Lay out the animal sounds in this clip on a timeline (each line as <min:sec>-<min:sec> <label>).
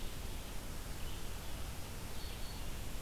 0:00.0-0:03.0 Red-eyed Vireo (Vireo olivaceus)
0:01.8-0:02.7 Black-throated Green Warbler (Setophaga virens)